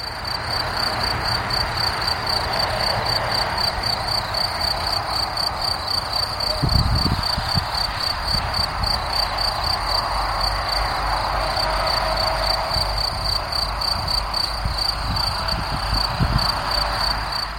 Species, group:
Gryllus campestris, Orthoptera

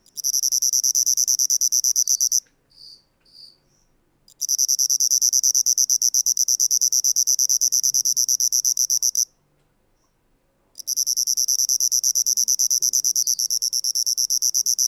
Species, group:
Svercus palmetorum, Orthoptera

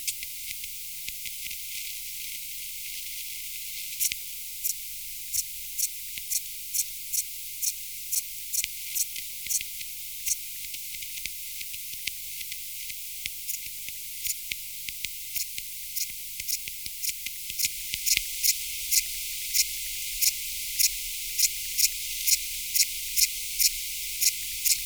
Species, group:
Tessellana orina, Orthoptera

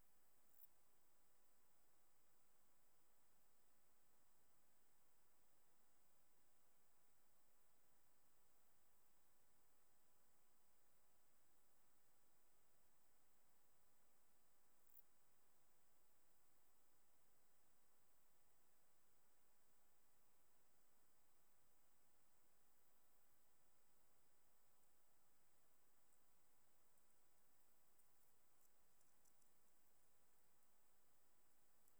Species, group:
Lluciapomaresius stalii, Orthoptera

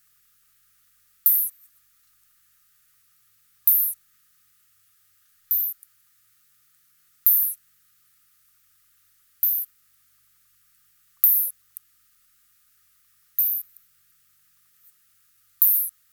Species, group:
Isophya rhodopensis, Orthoptera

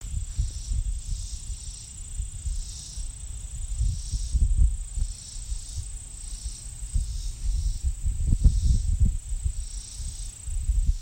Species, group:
Neotibicen robinsonianus, Cicadidae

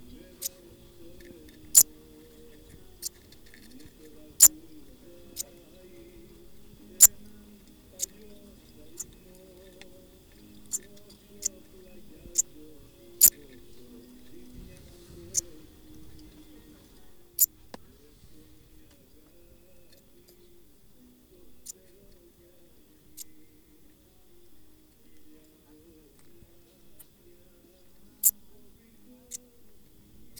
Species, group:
Eupholidoptera garganica, Orthoptera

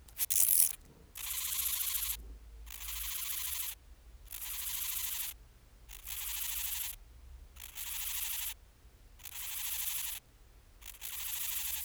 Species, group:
Chorthippus dichrous, Orthoptera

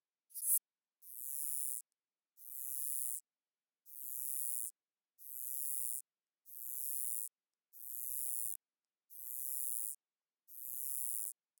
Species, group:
Uromenus rugosicollis, Orthoptera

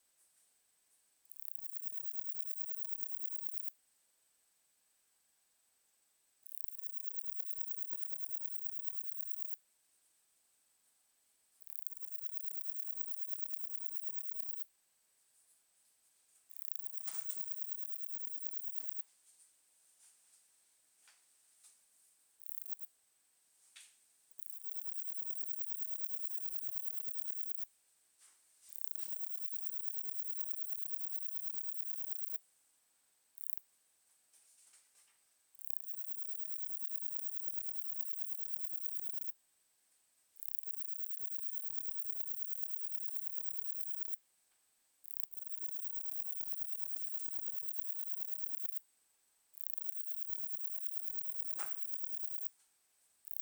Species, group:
Parnassiana chelmos, Orthoptera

